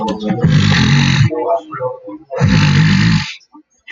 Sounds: Throat clearing